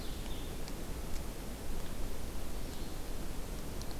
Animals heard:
Blue-headed Vireo (Vireo solitarius)

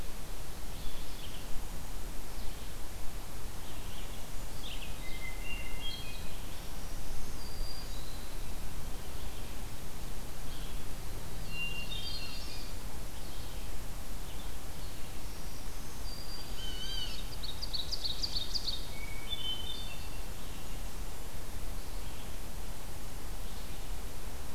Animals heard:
Blue Jay (Cyanocitta cristata), Black-throated Green Warbler (Setophaga virens), Red-eyed Vireo (Vireo olivaceus), Hermit Thrush (Catharus guttatus), Ovenbird (Seiurus aurocapilla), Black-throated Blue Warbler (Setophaga caerulescens)

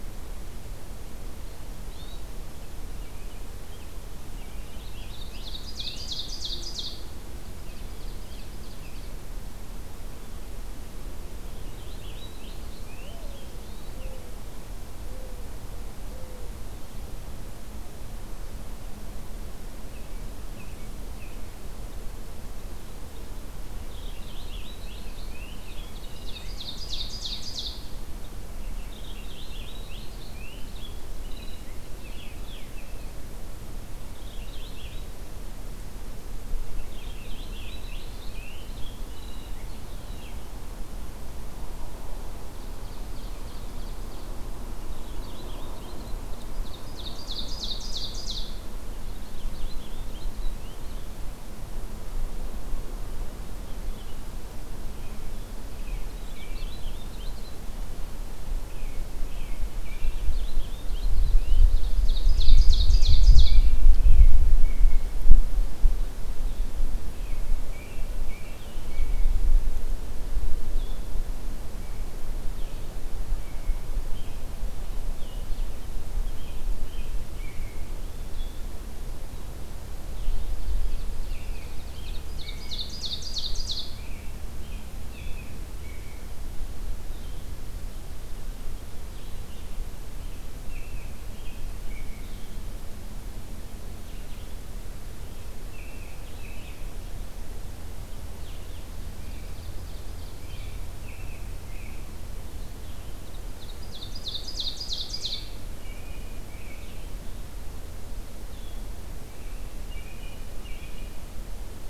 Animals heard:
Purple Finch (Haemorhous purpureus), Blue-headed Vireo (Vireo solitarius), Hermit Thrush (Catharus guttatus), Ovenbird (Seiurus aurocapilla), Mourning Dove (Zenaida macroura), American Robin (Turdus migratorius)

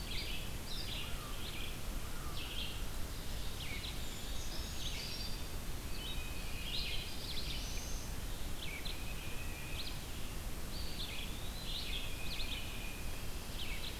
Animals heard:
Tufted Titmouse (Baeolophus bicolor), Eastern Wood-Pewee (Contopus virens), Black-throated Blue Warbler (Setophaga caerulescens), Red-eyed Vireo (Vireo olivaceus), Ovenbird (Seiurus aurocapilla), Brown Creeper (Certhia americana), American Crow (Corvus brachyrhynchos)

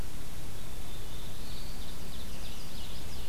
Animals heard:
Ovenbird (Seiurus aurocapilla), Chestnut-sided Warbler (Setophaga pensylvanica), Black-throated Blue Warbler (Setophaga caerulescens)

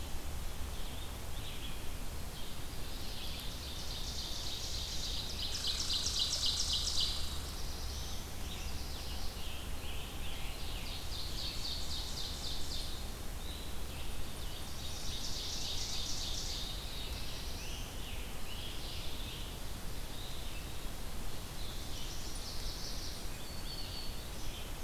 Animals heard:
Scarlet Tanager (Piranga olivacea), Chestnut-sided Warbler (Setophaga pensylvanica), Mourning Warbler (Geothlypis philadelphia), Black-throated Green Warbler (Setophaga virens), Red Squirrel (Tamiasciurus hudsonicus), Black-throated Blue Warbler (Setophaga caerulescens), Ovenbird (Seiurus aurocapilla), Red-eyed Vireo (Vireo olivaceus)

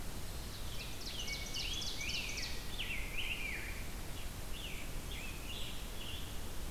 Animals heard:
Scarlet Tanager (Piranga olivacea), Rose-breasted Grosbeak (Pheucticus ludovicianus), Ovenbird (Seiurus aurocapilla)

